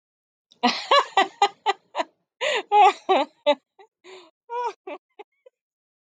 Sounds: Laughter